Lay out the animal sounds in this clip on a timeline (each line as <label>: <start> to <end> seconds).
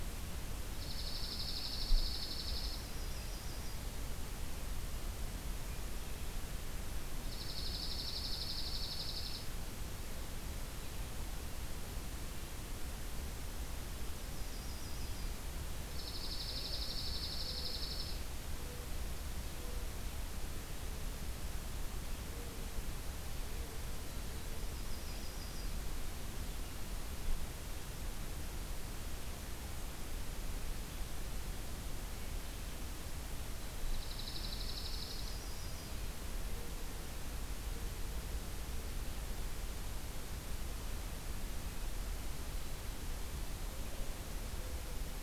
Dark-eyed Junco (Junco hyemalis): 0.7 to 2.9 seconds
Yellow-rumped Warbler (Setophaga coronata): 2.5 to 3.8 seconds
Dark-eyed Junco (Junco hyemalis): 7.2 to 9.4 seconds
Yellow-rumped Warbler (Setophaga coronata): 14.1 to 15.4 seconds
Dark-eyed Junco (Junco hyemalis): 15.8 to 18.1 seconds
Yellow-rumped Warbler (Setophaga coronata): 24.7 to 25.8 seconds
Dark-eyed Junco (Junco hyemalis): 33.8 to 35.4 seconds
Yellow-rumped Warbler (Setophaga coronata): 35.0 to 35.9 seconds